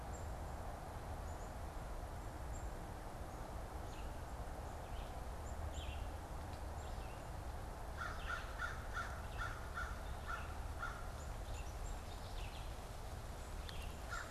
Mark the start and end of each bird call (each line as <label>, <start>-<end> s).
Black-capped Chickadee (Poecile atricapillus), 0.0-14.3 s
Red-eyed Vireo (Vireo olivaceus), 3.6-14.3 s
American Crow (Corvus brachyrhynchos), 7.7-11.2 s